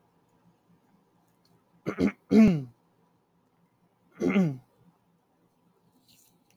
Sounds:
Throat clearing